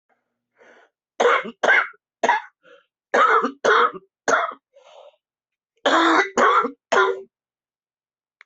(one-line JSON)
{"expert_labels": [{"quality": "good", "cough_type": "wet", "dyspnea": false, "wheezing": false, "stridor": false, "choking": false, "congestion": false, "nothing": true, "diagnosis": "lower respiratory tract infection", "severity": "severe"}], "age": 46, "gender": "female", "respiratory_condition": false, "fever_muscle_pain": true, "status": "symptomatic"}